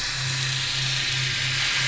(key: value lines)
label: anthrophony, boat engine
recorder: SoundTrap 500